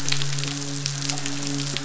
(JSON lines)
{"label": "biophony, midshipman", "recorder": "SoundTrap 500"}